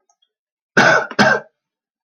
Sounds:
Cough